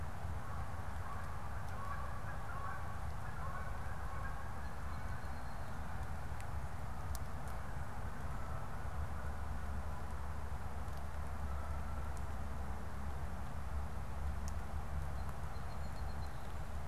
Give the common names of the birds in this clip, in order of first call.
Canada Goose, Song Sparrow